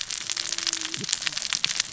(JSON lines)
{"label": "biophony, cascading saw", "recorder": "SoundTrap 600 or HydroMoth"}